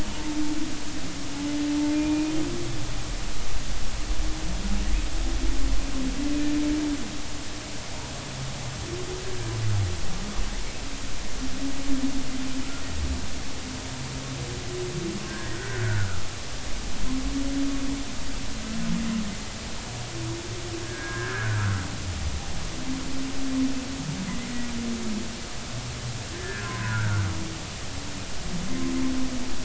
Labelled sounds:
1.9	2.3	humpback whale, 2.3 to 2.6 kHz
15.3	16.2	humpback whale, 1.2 to 1.9 kHz
20.8	21.8	humpback whale, 1.2 to 1.8 kHz
24.3	24.5	humpback whale, 1.9 to 2.2 kHz
26.3	27.2	humpback whale, 0.96 to 1.9 kHz

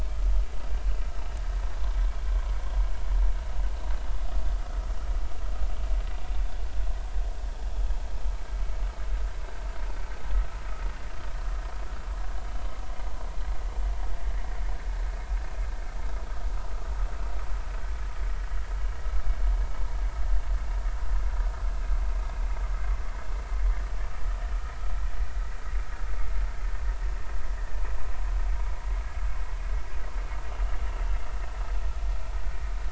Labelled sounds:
23.7	24.0	vessel noise, 1.8 to 2.0 kHz

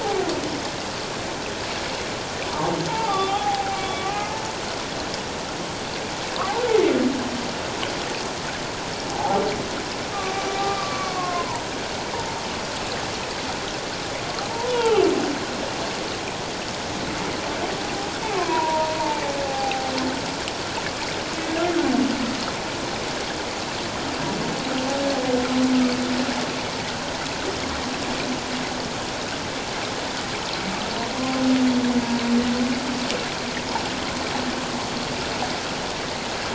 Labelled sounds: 2.5	3.8	humpback whale, 0.78 to 3.7 kHz
4.0	4.3	humpback whale, 1.1 to 1.3 kHz
9.1	9.4	humpback whale, 0.78 to 1.0 kHz
10.6	11.7	humpback whale, 0.84 to 1.3 kHz
14.7	15.0	humpback whale, 0.78 to 3.5 kHz
18.4	19.9	humpback whale, 0.78 to 1.1 kHz
31.2	31.4	humpback whale, 0.97 to 1.2 kHz

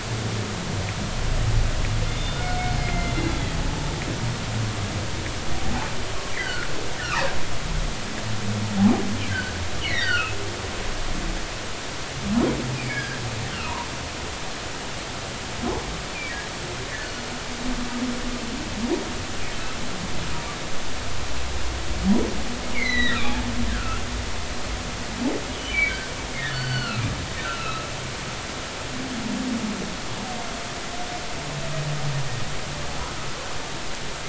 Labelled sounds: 2.1	3.1	humpback whale, 1.3 to 3.6 kHz
6.3	6.7	humpback whale, 1.3 to 2.1 kHz
9.3	10.4	humpback whale, 1.2 to 4.4 kHz
12.7	13.8	humpback whale, 1.5 to 2.9 kHz
22.7	24.0	humpback whale, 1.1 to 6.3 kHz
25.7	27.1	humpback whale, 1.2 to 4.6 kHz
27.4	27.9	humpback whale, 1.2 to 4.2 kHz

